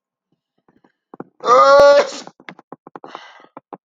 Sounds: Sneeze